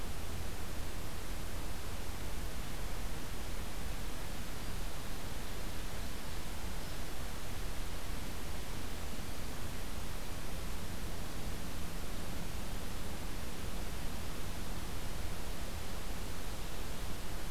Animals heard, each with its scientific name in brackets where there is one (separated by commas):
Hairy Woodpecker (Dryobates villosus)